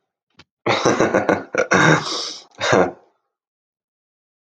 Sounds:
Laughter